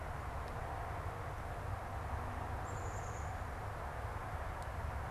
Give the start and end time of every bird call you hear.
[2.48, 3.78] Black-capped Chickadee (Poecile atricapillus)

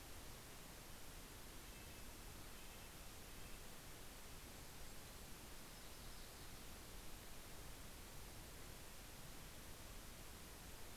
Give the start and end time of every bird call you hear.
[1.10, 4.30] Red-breasted Nuthatch (Sitta canadensis)
[4.90, 7.40] Yellow-rumped Warbler (Setophaga coronata)

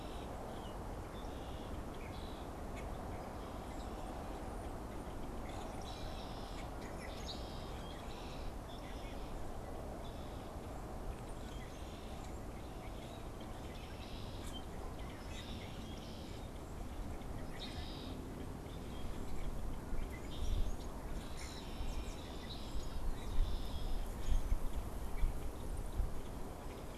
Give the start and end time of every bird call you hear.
[0.00, 26.98] Red-winged Blackbird (Agelaius phoeniceus)
[20.93, 22.13] Common Grackle (Quiscalus quiscula)

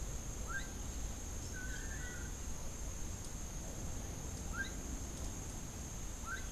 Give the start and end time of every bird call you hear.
[0.00, 6.48] Gray-headed Chachalaca (Ortalis cinereiceps)
[1.48, 2.48] Long-tailed Manakin (Chiroxiphia linearis)

